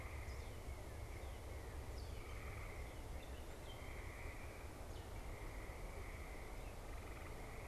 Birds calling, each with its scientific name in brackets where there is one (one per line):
Northern Cardinal (Cardinalis cardinalis)